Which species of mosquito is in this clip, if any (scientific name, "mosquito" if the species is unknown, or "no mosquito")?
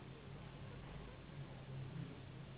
Anopheles gambiae s.s.